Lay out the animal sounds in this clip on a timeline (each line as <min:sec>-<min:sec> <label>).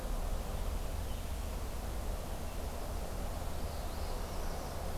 0:03.5-0:04.8 Northern Parula (Setophaga americana)